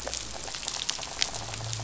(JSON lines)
{"label": "biophony", "recorder": "SoundTrap 500"}